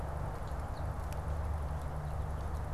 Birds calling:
American Goldfinch (Spinus tristis)

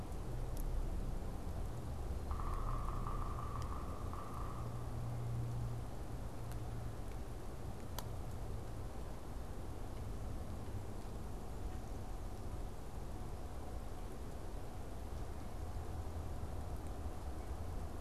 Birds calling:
Yellow-bellied Sapsucker (Sphyrapicus varius)

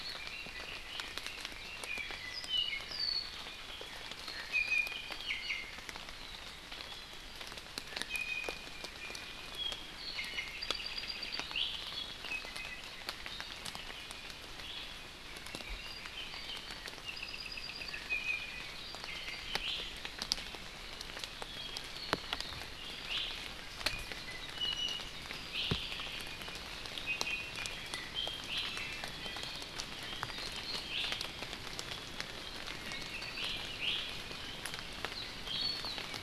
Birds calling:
Red-billed Leiothrix (Leiothrix lutea)
Iiwi (Drepanis coccinea)
Apapane (Himatione sanguinea)

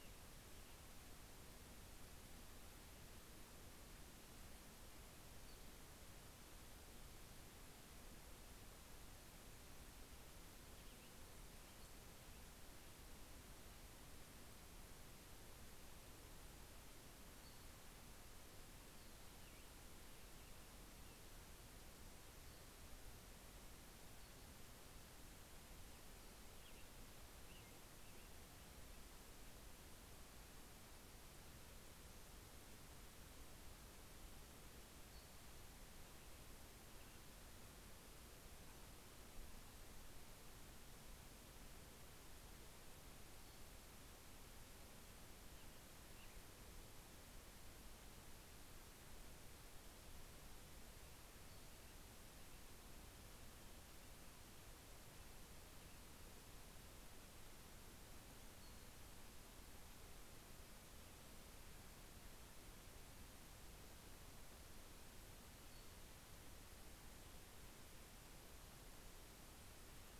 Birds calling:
Cassin's Vireo (Vireo cassinii)
American Robin (Turdus migratorius)

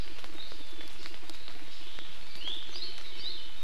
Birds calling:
Iiwi (Drepanis coccinea)

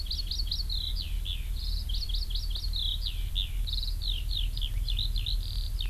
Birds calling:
Eurasian Skylark (Alauda arvensis)
Hawaii Amakihi (Chlorodrepanis virens)

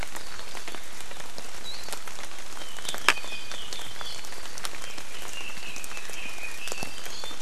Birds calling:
Red-billed Leiothrix (Leiothrix lutea)

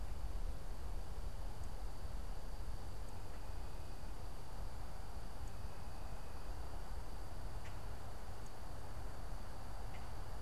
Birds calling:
Common Grackle (Quiscalus quiscula)

